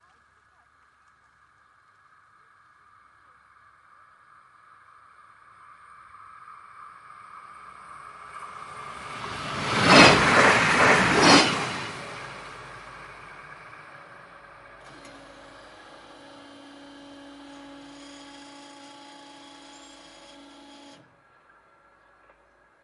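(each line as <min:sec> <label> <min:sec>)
0:09.3 A high-speed train passes by. 0:12.3
0:15.6 A car horn honks in the distance. 0:21.0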